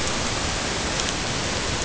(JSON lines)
{"label": "ambient", "recorder": "HydroMoth"}